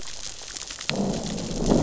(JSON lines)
{"label": "biophony, growl", "recorder": "SoundTrap 600 or HydroMoth"}